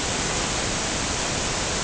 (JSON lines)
{"label": "ambient", "recorder": "HydroMoth"}